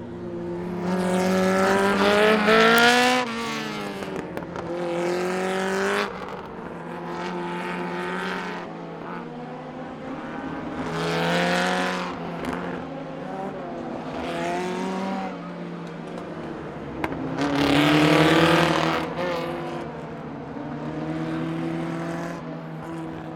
Can these devices fly?
no